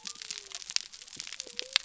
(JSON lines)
{"label": "biophony", "recorder": "SoundTrap 300"}